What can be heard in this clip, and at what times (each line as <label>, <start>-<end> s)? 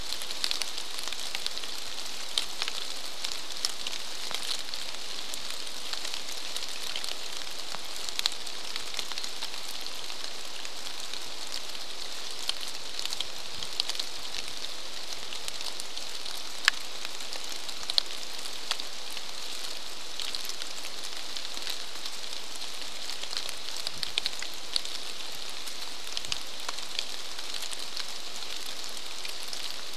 rain, 0-30 s